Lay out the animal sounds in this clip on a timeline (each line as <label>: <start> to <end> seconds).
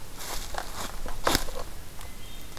Hermit Thrush (Catharus guttatus): 0.9 to 2.6 seconds